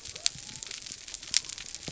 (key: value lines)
label: biophony
recorder: SoundTrap 300